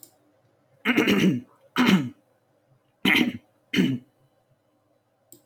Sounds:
Throat clearing